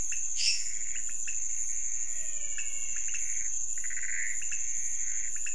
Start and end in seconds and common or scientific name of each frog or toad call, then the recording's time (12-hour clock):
0.0	5.5	pointedbelly frog
0.0	5.5	Pithecopus azureus
0.3	1.0	lesser tree frog
1.9	3.3	menwig frog
2:30am